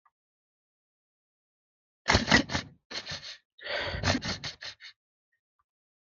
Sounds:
Sniff